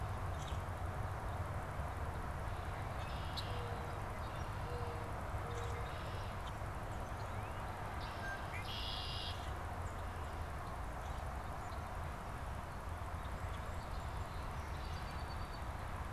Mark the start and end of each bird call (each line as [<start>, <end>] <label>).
[0.11, 0.81] Common Grackle (Quiscalus quiscula)
[2.81, 6.61] Red-winged Blackbird (Agelaius phoeniceus)
[3.31, 6.41] Mourning Dove (Zenaida macroura)
[7.01, 7.71] Northern Cardinal (Cardinalis cardinalis)
[7.81, 9.61] Red-winged Blackbird (Agelaius phoeniceus)
[13.41, 15.91] Song Sparrow (Melospiza melodia)